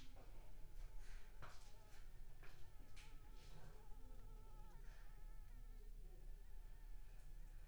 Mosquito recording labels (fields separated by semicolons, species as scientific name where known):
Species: Anopheles arabiensis; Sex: female; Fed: unfed; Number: one; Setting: cup